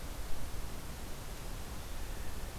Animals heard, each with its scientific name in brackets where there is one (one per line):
Blue Jay (Cyanocitta cristata)